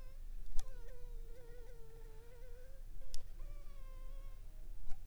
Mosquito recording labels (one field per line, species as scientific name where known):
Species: Anopheles funestus s.l.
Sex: female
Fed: unfed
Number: one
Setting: cup